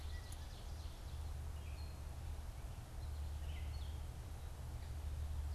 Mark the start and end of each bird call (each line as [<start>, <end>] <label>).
[0.00, 1.19] Ovenbird (Seiurus aurocapilla)
[0.00, 2.09] Gray Catbird (Dumetella carolinensis)
[3.09, 5.55] Gray Catbird (Dumetella carolinensis)